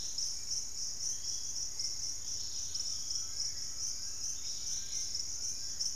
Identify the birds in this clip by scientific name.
Turdus hauxwelli, Pachysylvia hypoxantha, Legatus leucophaius, Crypturellus undulatus, Cymbilaimus lineatus, Myrmotherula menetriesii